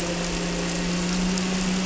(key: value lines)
label: anthrophony, boat engine
recorder: SoundTrap 300